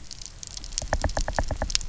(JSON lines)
{"label": "biophony, knock", "recorder": "SoundTrap 300"}